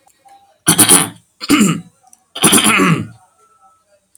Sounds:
Throat clearing